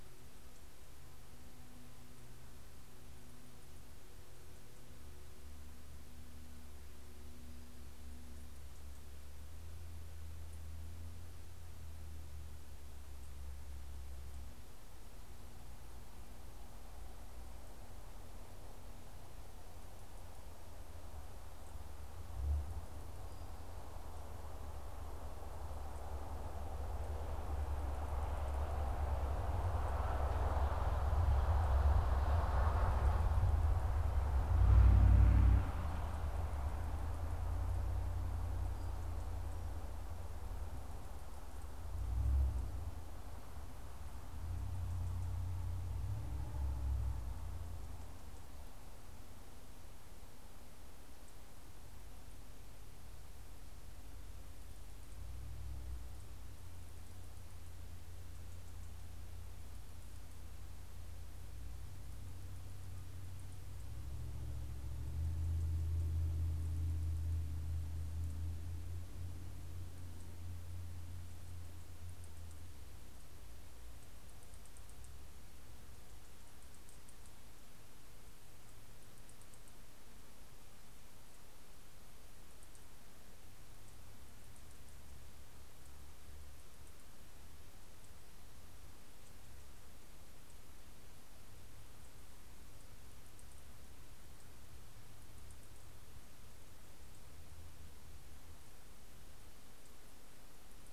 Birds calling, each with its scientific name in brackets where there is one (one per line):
Townsend's Warbler (Setophaga townsendi)